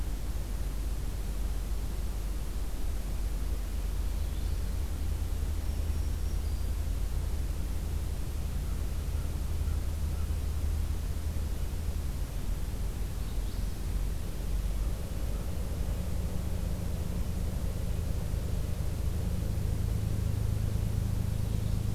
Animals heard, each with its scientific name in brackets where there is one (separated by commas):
Black-throated Green Warbler (Setophaga virens), Magnolia Warbler (Setophaga magnolia)